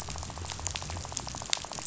{"label": "biophony, rattle", "recorder": "SoundTrap 500"}
{"label": "biophony", "recorder": "SoundTrap 500"}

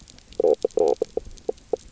{"label": "biophony, knock croak", "recorder": "SoundTrap 300"}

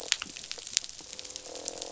{"label": "biophony, croak", "recorder": "SoundTrap 500"}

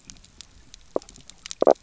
{"label": "biophony, knock croak", "recorder": "SoundTrap 300"}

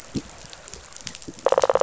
{"label": "biophony", "recorder": "SoundTrap 500"}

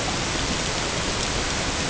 {"label": "ambient", "recorder": "HydroMoth"}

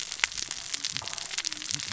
{"label": "biophony, cascading saw", "recorder": "SoundTrap 600 or HydroMoth"}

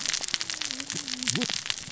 {"label": "biophony, cascading saw", "recorder": "SoundTrap 600 or HydroMoth"}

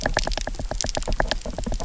{"label": "biophony, knock", "recorder": "SoundTrap 300"}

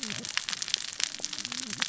{"label": "biophony, cascading saw", "recorder": "SoundTrap 600 or HydroMoth"}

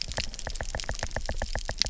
{"label": "biophony, knock", "recorder": "SoundTrap 300"}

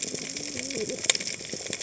{"label": "biophony, cascading saw", "recorder": "HydroMoth"}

